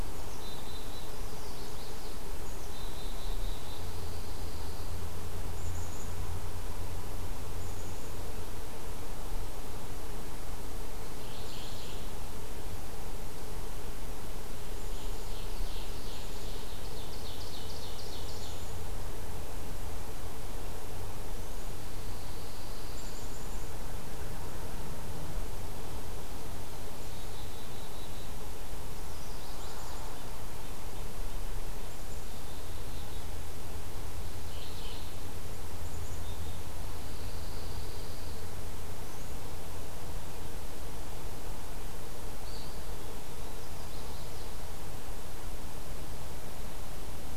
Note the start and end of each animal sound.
0.0s-1.2s: Black-capped Chickadee (Poecile atricapillus)
1.0s-2.3s: Chestnut-sided Warbler (Setophaga pensylvanica)
2.6s-3.9s: Black-capped Chickadee (Poecile atricapillus)
3.4s-4.9s: Pine Warbler (Setophaga pinus)
5.4s-8.1s: Black-capped Chickadee (Poecile atricapillus)
11.0s-12.1s: Mourning Warbler (Geothlypis philadelphia)
14.6s-23.9s: Black-capped Chickadee (Poecile atricapillus)
14.9s-18.8s: Ovenbird (Seiurus aurocapilla)
21.6s-23.4s: Pine Warbler (Setophaga pinus)
27.0s-28.5s: Black-capped Chickadee (Poecile atricapillus)
28.9s-30.2s: Chestnut-sided Warbler (Setophaga pensylvanica)
29.5s-30.3s: Black-capped Chickadee (Poecile atricapillus)
31.7s-33.3s: Black-capped Chickadee (Poecile atricapillus)
34.2s-35.2s: Mourning Warbler (Geothlypis philadelphia)
35.8s-36.6s: Black-capped Chickadee (Poecile atricapillus)
36.8s-38.5s: Pine Warbler (Setophaga pinus)
42.3s-43.6s: Eastern Wood-Pewee (Contopus virens)
43.6s-44.6s: Chestnut-sided Warbler (Setophaga pensylvanica)

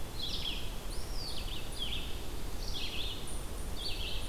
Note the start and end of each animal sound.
0.0s-4.3s: Red-eyed Vireo (Vireo olivaceus)
0.0s-4.3s: unidentified call
0.7s-1.6s: Eastern Wood-Pewee (Contopus virens)

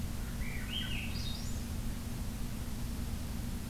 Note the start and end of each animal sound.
0.0s-1.7s: Swainson's Thrush (Catharus ustulatus)

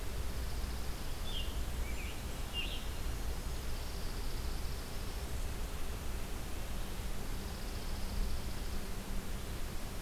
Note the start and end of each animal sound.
0.0s-1.4s: Chipping Sparrow (Spizella passerina)
1.1s-3.0s: Scarlet Tanager (Piranga olivacea)
1.2s-2.5s: Blackburnian Warbler (Setophaga fusca)
3.2s-5.2s: Chipping Sparrow (Spizella passerina)
7.1s-8.8s: Chipping Sparrow (Spizella passerina)

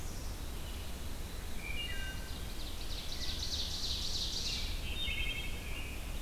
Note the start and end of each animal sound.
0.0s-1.6s: Black-capped Chickadee (Poecile atricapillus)
1.5s-2.5s: Wood Thrush (Hylocichla mustelina)
2.1s-4.9s: Ovenbird (Seiurus aurocapilla)
3.1s-3.6s: Wood Thrush (Hylocichla mustelina)
4.3s-6.2s: American Robin (Turdus migratorius)
4.9s-5.6s: Wood Thrush (Hylocichla mustelina)

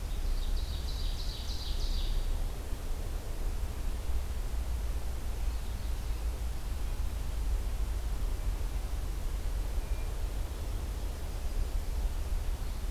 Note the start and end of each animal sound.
0.0s-2.5s: Ovenbird (Seiurus aurocapilla)
9.7s-10.8s: Hermit Thrush (Catharus guttatus)

